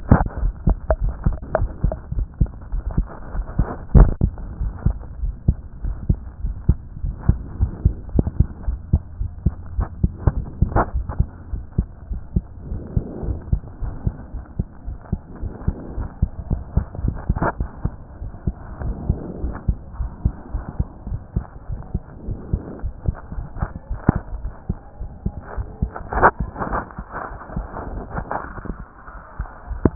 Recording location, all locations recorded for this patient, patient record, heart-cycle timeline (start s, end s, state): aortic valve (AV)
aortic valve (AV)+pulmonary valve (PV)+tricuspid valve (TV)+mitral valve (MV)
#Age: Child
#Sex: Male
#Height: 124.0 cm
#Weight: 23.6 kg
#Pregnancy status: False
#Murmur: Absent
#Murmur locations: nan
#Most audible location: nan
#Systolic murmur timing: nan
#Systolic murmur shape: nan
#Systolic murmur grading: nan
#Systolic murmur pitch: nan
#Systolic murmur quality: nan
#Diastolic murmur timing: nan
#Diastolic murmur shape: nan
#Diastolic murmur grading: nan
#Diastolic murmur pitch: nan
#Diastolic murmur quality: nan
#Outcome: Normal
#Campaign: 2014 screening campaign
0.00	5.84	unannotated
5.84	5.98	S1
5.98	6.14	systole
6.14	6.24	S2
6.24	6.45	diastole
6.45	6.58	S1
6.58	6.74	systole
6.74	6.84	S2
6.84	7.04	diastole
7.04	7.17	S1
7.17	7.32	systole
7.32	7.42	S2
7.42	7.61	diastole
7.61	7.74	S1
7.74	7.88	systole
7.88	7.96	S2
7.96	8.16	diastole
8.16	8.29	S1
8.29	8.44	systole
8.44	8.54	S2
8.54	8.68	diastole
8.68	29.95	unannotated